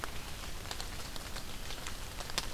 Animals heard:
forest ambience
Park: Marsh-Billings-Rockefeller National Historical Park